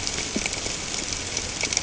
{"label": "ambient", "recorder": "HydroMoth"}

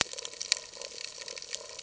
{"label": "ambient", "recorder": "HydroMoth"}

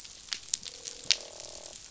{"label": "biophony, croak", "recorder": "SoundTrap 500"}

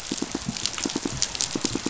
{"label": "biophony, pulse", "recorder": "SoundTrap 500"}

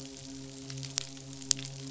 {"label": "biophony, midshipman", "recorder": "SoundTrap 500"}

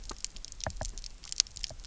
{"label": "biophony, knock", "recorder": "SoundTrap 300"}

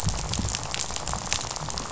{"label": "biophony, rattle", "recorder": "SoundTrap 500"}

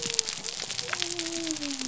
{"label": "biophony", "recorder": "SoundTrap 300"}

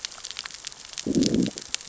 {"label": "biophony, growl", "recorder": "SoundTrap 600 or HydroMoth"}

